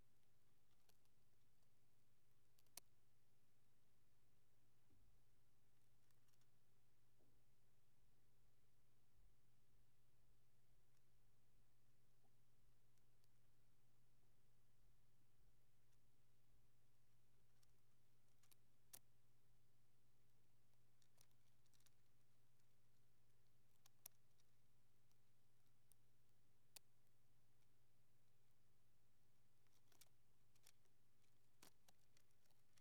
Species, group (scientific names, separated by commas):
Eupholidoptera latens, Orthoptera